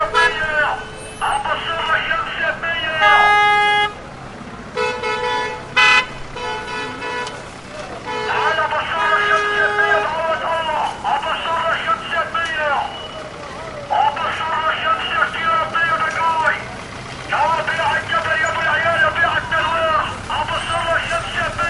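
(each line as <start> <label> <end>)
0.0 A car horn is blaring. 0.2
0.0 A person is speaking Arabic through a megaphone. 3.1
1.1 A car horn honks on the street. 3.9
4.7 A car horn honks on the street. 10.2
8.3 A person is speaking Arabic through a megaphone. 21.7
9.1 A car engine rumbles quietly on the street. 21.7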